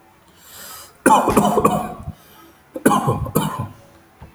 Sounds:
Cough